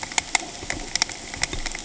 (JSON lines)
{"label": "ambient", "recorder": "HydroMoth"}